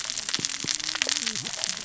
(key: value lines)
label: biophony, cascading saw
recorder: SoundTrap 600 or HydroMoth